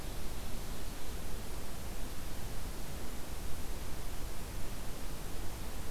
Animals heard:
forest ambience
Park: Hubbard Brook Experimental Forest